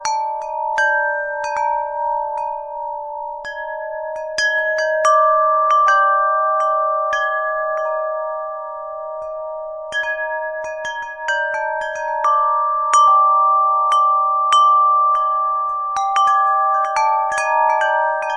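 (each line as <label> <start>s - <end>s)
Loud, sharp, metallic wind chimes chiming irregularly. 0.0s - 18.4s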